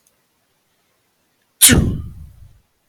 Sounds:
Sneeze